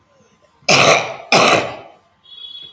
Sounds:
Cough